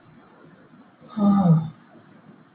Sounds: Sigh